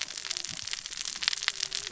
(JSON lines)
{"label": "biophony, cascading saw", "recorder": "SoundTrap 600 or HydroMoth"}